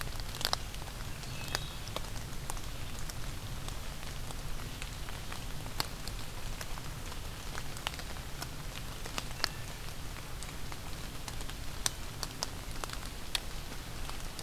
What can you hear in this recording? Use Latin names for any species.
Hylocichla mustelina